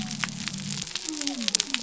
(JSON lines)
{"label": "biophony", "recorder": "SoundTrap 300"}